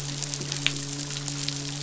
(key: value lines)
label: biophony, midshipman
recorder: SoundTrap 500